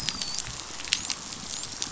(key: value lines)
label: biophony, dolphin
recorder: SoundTrap 500